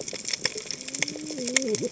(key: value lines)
label: biophony, cascading saw
recorder: HydroMoth